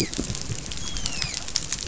{"label": "biophony, dolphin", "recorder": "SoundTrap 500"}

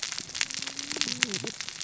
{"label": "biophony, cascading saw", "recorder": "SoundTrap 600 or HydroMoth"}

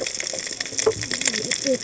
{"label": "biophony, cascading saw", "recorder": "HydroMoth"}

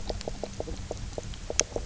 {"label": "biophony, knock croak", "recorder": "SoundTrap 300"}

